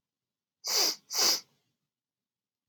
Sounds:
Sniff